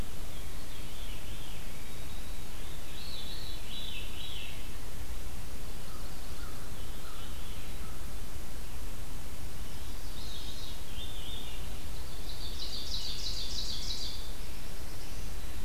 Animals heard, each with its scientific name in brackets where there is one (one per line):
Black-throated Blue Warbler (Setophaga caerulescens)
White-throated Sparrow (Zonotrichia albicollis)
American Crow (Corvus brachyrhynchos)
Veery (Catharus fuscescens)
Chestnut-sided Warbler (Setophaga pensylvanica)
Ovenbird (Seiurus aurocapilla)